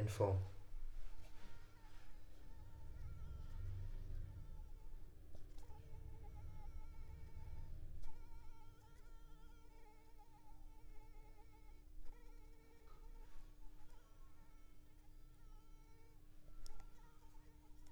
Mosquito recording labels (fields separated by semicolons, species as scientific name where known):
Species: Anopheles arabiensis; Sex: female; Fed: unfed; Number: one; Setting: cup